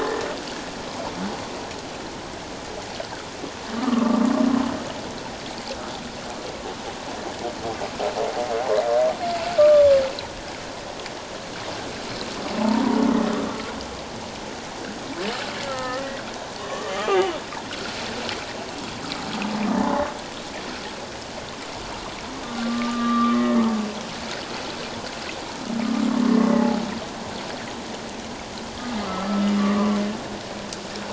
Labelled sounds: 3.8	4.2	humpback whale, 1.0 to 1.4 kHz
9.6	10.0	humpback whale, 1.1 to 1.2 kHz
12.6	13.0	humpback whale, 0.81 to 1.1 kHz
15.7	17.3	humpback whale, 0.78 to 2.0 kHz
19.7	20.0	humpback whale, 0.81 to 1.1 kHz
22.4	23.6	humpback whale, 1.0 to 3.8 kHz
26.3	26.9	humpback whale, 0.78 to 2.1 kHz
29.1	30.0	humpback whale, 0.97 to 1.4 kHz

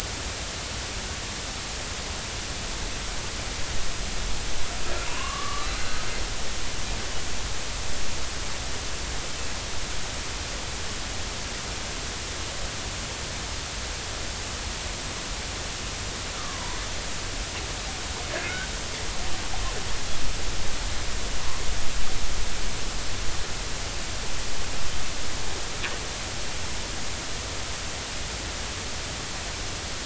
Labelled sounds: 5.1	6.0	killer whale, northern resident, 0.90 to 4.2 kHz
16.4	16.8	killer whale, northern resident, 0.90 to 1.2 kHz
18.4	18.7	killer whale, northern resident, 1.4 to 2.3 kHz

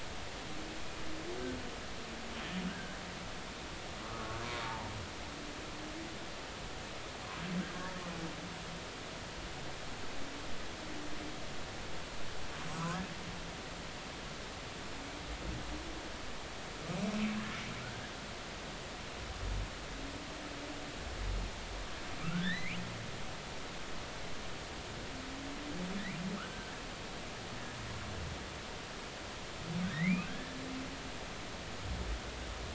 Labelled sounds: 2.7	3.0	humpback whale, 1.4 to 1.7 kHz
4.1	4.9	humpback whale, 0.80 to 1.2 kHz
12.7	13.1	humpback whale, 1.0 to 1.7 kHz
22.2	22.8	humpback whale, 1.2 to 4.2 kHz
29.8	30.6	humpback whale, 1.4 to 2.7 kHz

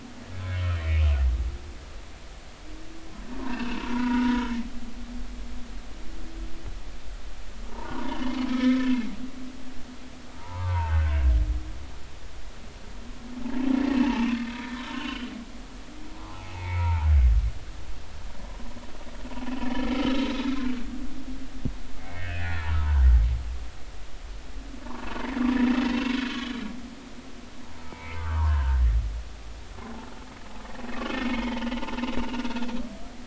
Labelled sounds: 0.8	1.1	humpback whale, 2.1 to 2.6 kHz
3.5	4.5	humpback whale, 0.90 to 3.0 kHz
7.7	9.1	humpback whale, 0.86 to 3.1 kHz
10.4	11.1	humpback whale, 0.80 to 1.7 kHz
14.4	15.3	humpback whale, 1.2 to 3.1 kHz
16.2	17.1	humpback whale, 0.80 to 2.5 kHz
19.9	20.6	humpback whale, 1.2 to 4.0 kHz
22.0	23.0	humpback whale, 0.86 to 2.3 kHz
26.3	26.6	humpback whale, 3.3 to 4.2 kHz
27.7	28.8	humpback whale, 0.83 to 2.4 kHz
31.1	31.8	humpback whale, 0.86 to 3.4 kHz

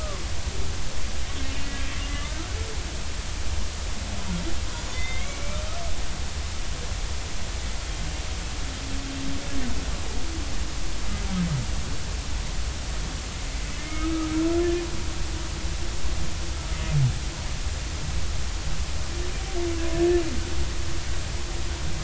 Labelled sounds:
2.1	2.4	humpback whale, 1.1 to 2.1 kHz
4.9	5.4	humpback whale, 2.0 to 3.7 kHz
13.8	14.3	humpback whale, 1.2 to 2.2 kHz

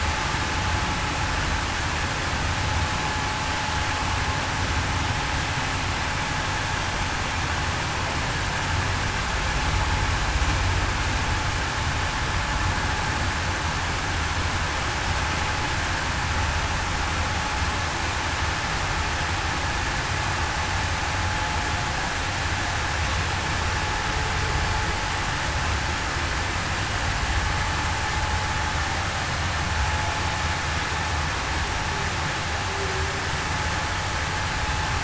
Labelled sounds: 32.7	33.1	humpback whale, 0.35 to 0.42 kHz

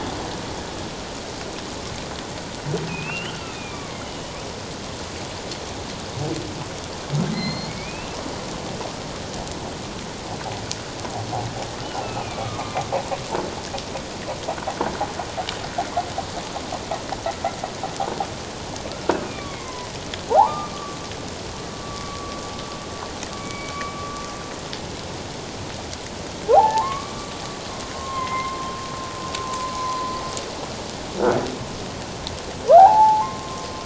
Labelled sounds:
2.9	4.3	humpback whale, 1.0 to 3.3 kHz
7.3	8.2	humpback whale, 1.9 to 4.4 kHz
12.0	12.8	humpback whale, 1.0 to 2.5 kHz
19.5	21.0	humpback whale, 0.78 to 2.3 kHz
21.8	22.4	humpback whale, 1.1 to 1.2 kHz
23.4	23.7	humpback whale, 2.2 to 2.3 kHz
26.5	27.3	humpback whale, 0.78 to 2.3 kHz
27.9	30.1	humpback whale, 0.94 to 2.2 kHz
32.7	33.7	humpback whale, 0.78 to 1.7 kHz

